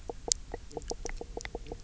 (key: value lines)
label: biophony, knock croak
recorder: SoundTrap 300